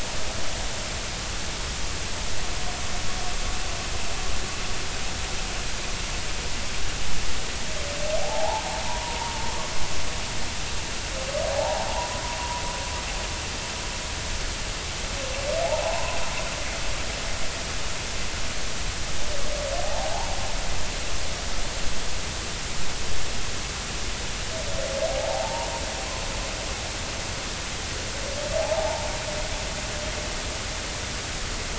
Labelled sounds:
8.2	9.4	humpback whale, 0.80 to 1.0 kHz
11.5	11.9	humpback whale, 0.80 to 0.99 kHz
15.6	16.2	humpback whale, 0.80 to 1.1 kHz
19.8	20.3	humpback whale, 0.80 to 0.99 kHz
25.3	25.7	humpback whale, 0.80 to 0.99 kHz
28.6	29.1	humpback whale, 0.80 to 0.99 kHz

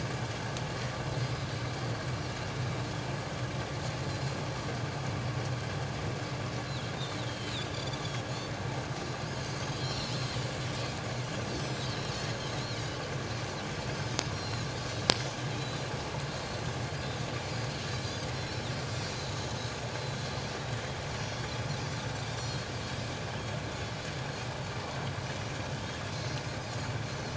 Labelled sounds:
7.3	8.0	Pacific white-sided dolphin, 3.0 to 3.6 kHz
9.8	10.2	Pacific white-sided dolphin, 3.9 to 5.8 kHz
11.6	11.9	Pacific white-sided dolphin, 3.8 to 7.8 kHz
14.3	15.0	Pacific white-sided dolphin, 3.9 to 5.7 kHz
15.6	16.6	Pacific white-sided dolphin, 3.7 to 4.6 kHz
18.0	18.7	Pacific white-sided dolphin, 3.4 to 5.6 kHz
21.2	21.4	Pacific white-sided dolphin, 4.2 to 4.5 kHz
22.4	22.7	Pacific white-sided dolphin, 4.1 to 4.4 kHz
25.2	25.6	Pacific white-sided dolphin, 5.7 to 6.0 kHz
27.1	27.3	Pacific white-sided dolphin, 5.8 to 6.1 kHz

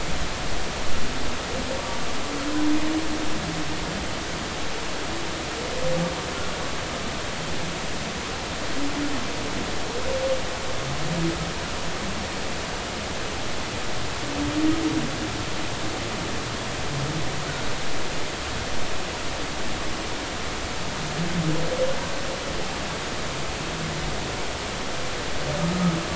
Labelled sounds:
1.8	2.1	humpback whale, 1.1 to 1.2 kHz

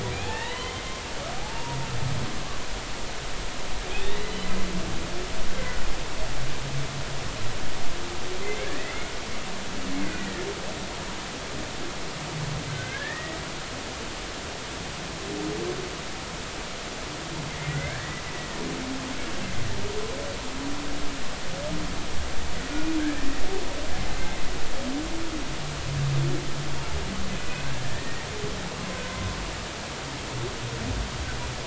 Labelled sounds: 0.1	1.8	humpback whale, 0.80 to 3.2 kHz
8.4	8.9	humpback whale, 1.6 to 2.3 kHz
10.2	10.5	humpback whale, 1.7 to 2.0 kHz
12.7	13.4	humpback whale, 1.5 to 2.0 kHz
17.7	18.2	humpback whale, 1.4 to 2.4 kHz
24.2	24.5	humpback whale, 1.9 to 2.2 kHz
27.3	28.3	humpback whale, 1.7 to 2.6 kHz
28.8	29.0	humpback whale, 0.99 to 1.2 kHz

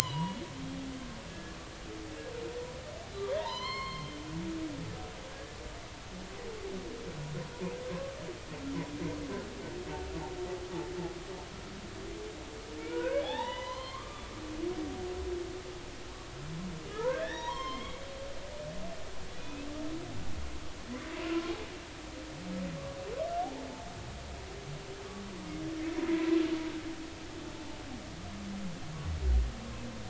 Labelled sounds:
1.0	1.6	humpback whale, 1.6 to 3.2 kHz
3.3	4.2	humpback whale, 0.83 to 4.4 kHz
5.3	5.6	humpback whale, 1.6 to 1.8 kHz
12.8	14.4	humpback whale, 0.80 to 4.3 kHz
16.9	18.0	humpback whale, 0.86 to 5.9 kHz
19.4	19.7	humpback whale, 2.4 to 2.7 kHz
21.3	21.5	humpback whale, 1.3 to 1.4 kHz
26.1	26.4	humpback whale, 0.93 to 1.1 kHz

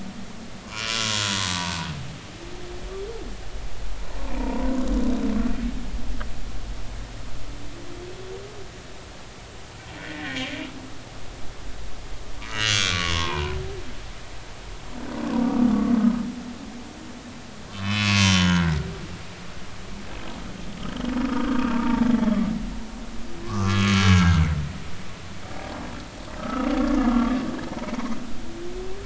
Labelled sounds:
0.7	1.8	humpback whale, 0.86 to 2.9 kHz
4.2	4.7	humpback whale, 0.86 to 1.1 kHz
10.0	10.4	humpback whale, 1.6 to 2.0 kHz
12.4	13.6	humpback whale, 0.86 to 6.9 kHz
17.7	18.8	humpback whale, 0.93 to 6.7 kHz
20.9	22.1	humpback whale, 0.80 to 3.3 kHz
23.4	24.5	humpback whale, 0.99 to 6.5 kHz
26.4	27.4	humpback whale, 1.1 to 1.5 kHz

